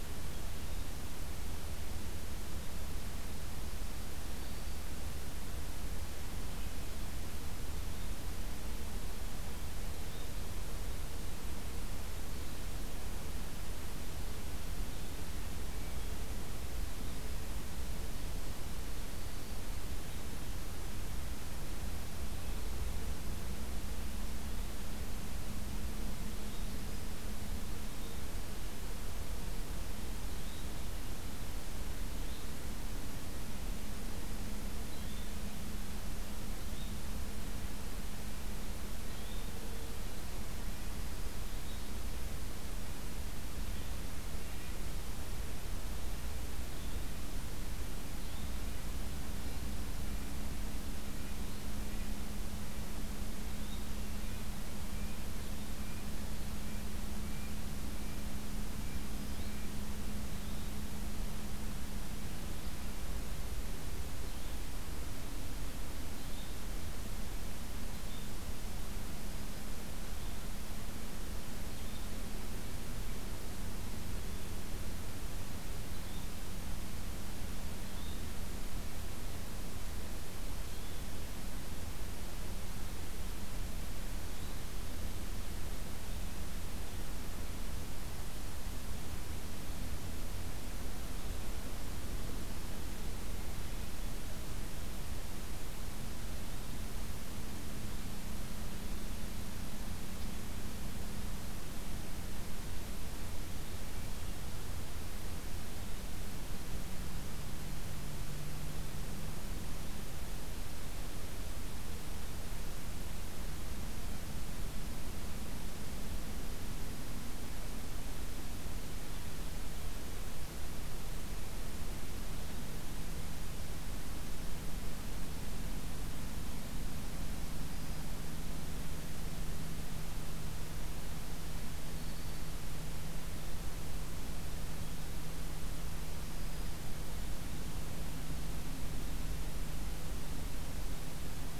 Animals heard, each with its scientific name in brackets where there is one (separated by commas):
Red-breasted Nuthatch (Sitta canadensis), Yellow-bellied Flycatcher (Empidonax flaviventris)